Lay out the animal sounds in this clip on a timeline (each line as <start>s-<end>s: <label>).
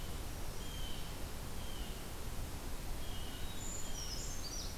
0.0s-2.0s: Blue Jay (Cyanocitta cristata)
0.1s-1.2s: Brown Creeper (Certhia americana)
2.9s-4.2s: Blue Jay (Cyanocitta cristata)
3.6s-4.8s: Brown Creeper (Certhia americana)